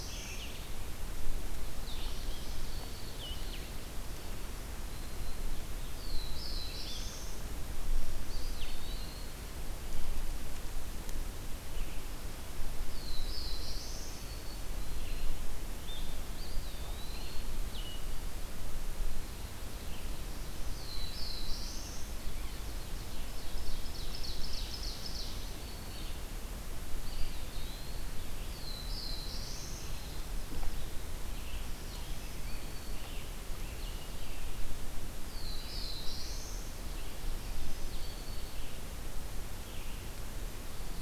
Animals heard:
Black-throated Blue Warbler (Setophaga caerulescens), Ovenbird (Seiurus aurocapilla), Red-eyed Vireo (Vireo olivaceus), Black-throated Green Warbler (Setophaga virens), Eastern Wood-Pewee (Contopus virens)

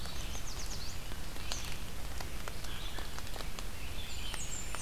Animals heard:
Yellow Warbler (Setophaga petechia), Blackburnian Warbler (Setophaga fusca), Eastern Kingbird (Tyrannus tyrannus), Red-eyed Vireo (Vireo olivaceus)

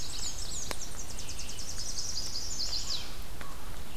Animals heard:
Black-and-white Warbler (Mniotilta varia), Chestnut-sided Warbler (Setophaga pensylvanica), Yellow-rumped Warbler (Setophaga coronata), Tennessee Warbler (Leiothlypis peregrina), Red-eyed Vireo (Vireo olivaceus)

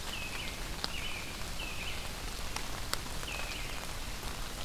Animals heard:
Red-eyed Vireo (Vireo olivaceus), American Robin (Turdus migratorius)

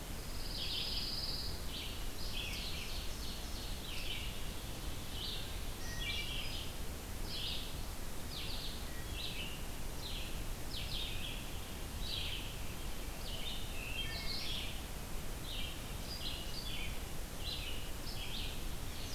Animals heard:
Wood Thrush (Hylocichla mustelina), Ovenbird (Seiurus aurocapilla), Pine Warbler (Setophaga pinus), Red-eyed Vireo (Vireo olivaceus)

